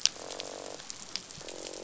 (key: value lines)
label: biophony, croak
recorder: SoundTrap 500